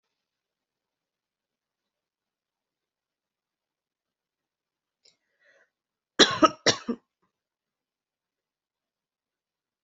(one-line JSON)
{"expert_labels": [{"quality": "good", "cough_type": "dry", "dyspnea": false, "wheezing": false, "stridor": false, "choking": false, "congestion": false, "nothing": true, "diagnosis": "COVID-19", "severity": "mild"}], "age": 23, "gender": "female", "respiratory_condition": false, "fever_muscle_pain": false, "status": "COVID-19"}